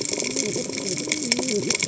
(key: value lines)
label: biophony, cascading saw
recorder: HydroMoth